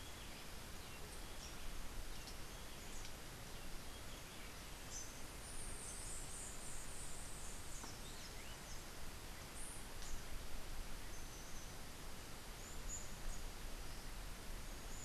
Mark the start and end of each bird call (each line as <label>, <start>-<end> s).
Rufous-breasted Wren (Pheugopedius rutilus), 0.0-4.4 s
White-eared Ground-Sparrow (Melozone leucotis), 5.6-8.3 s